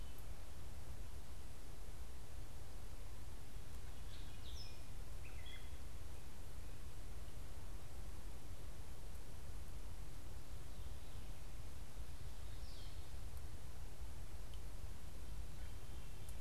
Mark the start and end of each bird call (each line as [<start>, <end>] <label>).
[3.87, 5.87] Gray Catbird (Dumetella carolinensis)
[12.37, 13.07] unidentified bird